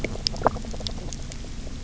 {"label": "biophony, knock croak", "recorder": "SoundTrap 300"}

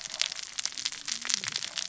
{"label": "biophony, cascading saw", "recorder": "SoundTrap 600 or HydroMoth"}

